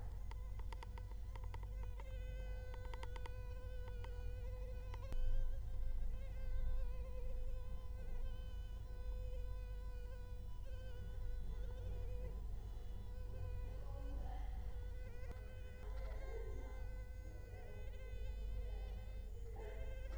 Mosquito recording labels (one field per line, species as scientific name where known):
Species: Culex quinquefasciatus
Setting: cup